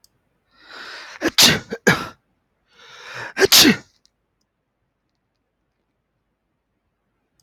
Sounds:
Sneeze